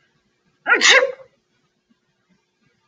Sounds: Sneeze